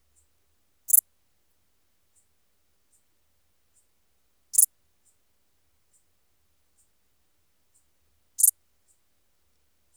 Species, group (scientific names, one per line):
Pholidoptera fallax
Orthoptera